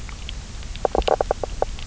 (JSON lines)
{"label": "biophony, knock croak", "recorder": "SoundTrap 300"}